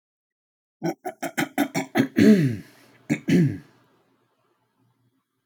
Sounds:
Throat clearing